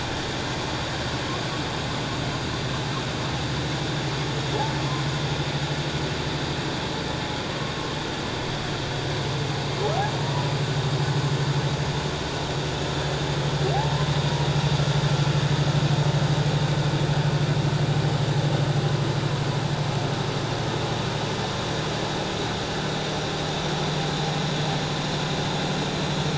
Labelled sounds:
13.7	14.0	humpback whale, 0.78 to 0.94 kHz

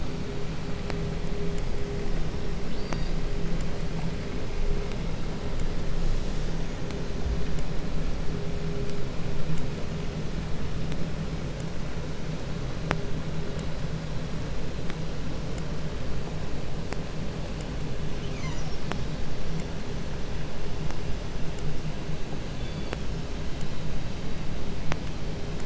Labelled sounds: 2.5	3.3	killer whale, 1.4 to 5.4 kHz
17.9	18.9	killer whale, 0.44 to 7.7 kHz
22.3	23.2	killer whale, southern resident, 1.7 to 5.2 kHz

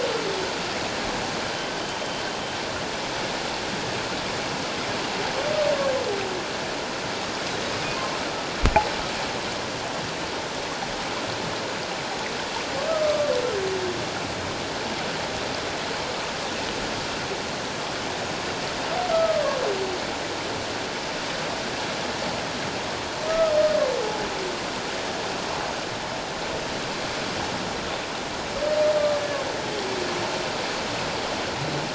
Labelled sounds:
12.9	13.3	humpback whale, 1.1 to 1.3 kHz
19.1	19.6	humpback whale, 1.0 to 1.4 kHz
23.3	23.5	humpback whale, 1.2 to 1.3 kHz

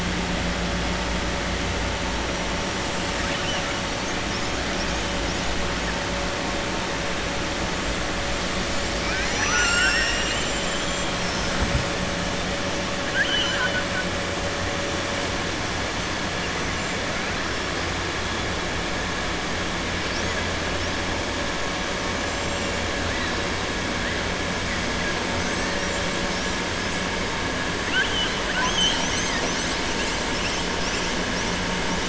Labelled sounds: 3.1	3.8	killer whale, southern resident, 1.3 to 3.5 kHz
13.0	14.0	killer whale, southern resident, 1.0 to 6.0 kHz

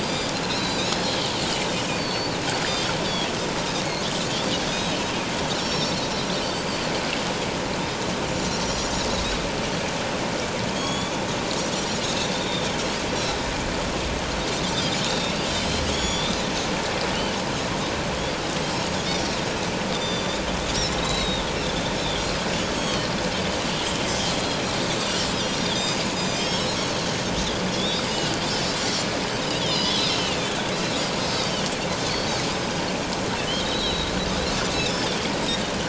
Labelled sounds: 0.0	1.0	Pacific white-sided dolphin, 3.5 to 5.0 kHz
1.9	2.4	Pacific white-sided dolphin, 4.4 to 4.6 kHz
4.7	5.0	Pacific white-sided dolphin, 3.6 to 3.9 kHz
5.5	6.0	Pacific white-sided dolphin, 3.5 to 7.1 kHz
6.4	6.8	Pacific white-sided dolphin, 4.4 to 4.9 kHz
8.3	8.9	Pacific white-sided dolphin, 5.4 to 7.2 kHz
10.7	11.1	Pacific white-sided dolphin, 3.2 to 7.0 kHz
12.3	12.7	Pacific white-sided dolphin, 3.4 to 3.8 kHz
13.1	13.4	Pacific white-sided dolphin, 3.8 to 4.2 kHz
15.0	16.3	Pacific white-sided dolphin, 2.6 to 7.0 kHz
18.7	19.1	Pacific white-sided dolphin, 6.5 to 6.7 kHz
19.9	21.5	Pacific white-sided dolphin, 3.4 to 6.0 kHz
22.8	23.1	Pacific white-sided dolphin, 3.0 to 4.5 kHz
25.4	26.7	Pacific white-sided dolphin, 3.1 to 7.6 kHz
27.7	28.8	Pacific white-sided dolphin, 3.2 to 5.4 kHz
29.4	31.5	Pacific white-sided dolphin, 2.3 to 5.2 kHz
32.2	32.4	Pacific white-sided dolphin, 4.4 to 4.8 kHz
33.6	34.1	Pacific white-sided dolphin, 3.6 to 4.1 kHz
34.7	35.1	Pacific white-sided dolphin, 3.2 to 5.6 kHz

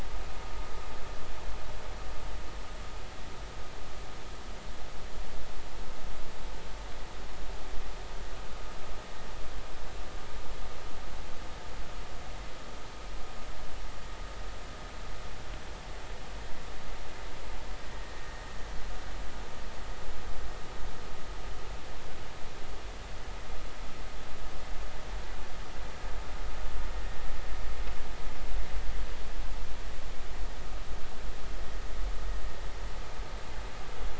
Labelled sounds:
17.9	18.4	vessel noise, 1.8 to 2.0 kHz

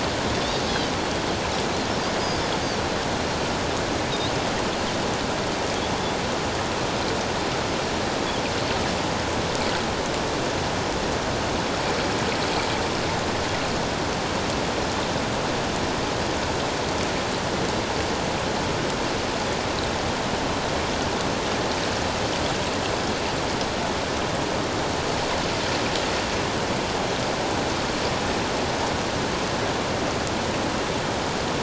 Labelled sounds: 0.6	1.2	Pacific white-sided dolphin, 3.0 to 3.4 kHz

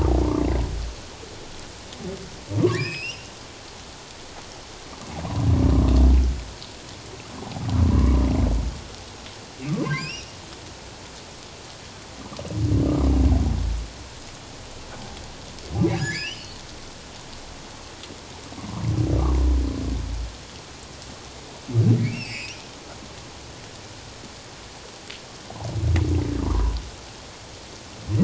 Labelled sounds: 2.6	3.3	humpback whale, 0.97 to 7.7 kHz
7.9	8.2	humpback whale, 0.94 to 1.2 kHz
9.7	10.3	humpback whale, 0.97 to 5.8 kHz
15.9	16.6	humpback whale, 1.6 to 7.3 kHz
22.0	22.6	humpback whale, 2.1 to 5.6 kHz
26.4	26.8	humpback whale, 0.88 to 1.2 kHz

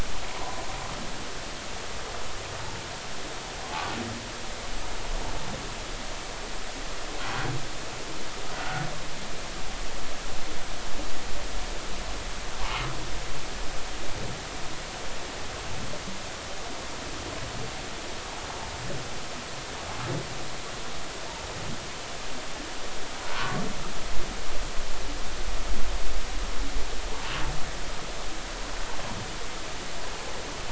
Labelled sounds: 0.4	0.6	humpback whale, 0.96 to 1.0 kHz
8.5	8.8	humpback whale, 1.4 to 1.5 kHz
23.2	23.6	humpback whale, 0.93 to 1.2 kHz

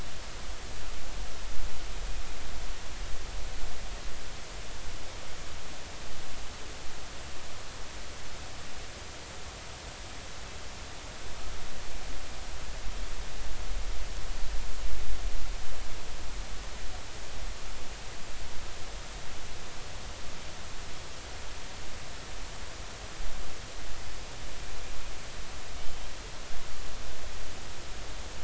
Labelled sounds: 25.8	26.1	killer whale, northern resident, G clan, 2.9 to 3.2 kHz

